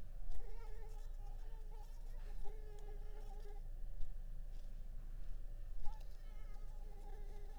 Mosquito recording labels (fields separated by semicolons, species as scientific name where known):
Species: Anopheles arabiensis; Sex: female; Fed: unfed; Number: one; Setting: cup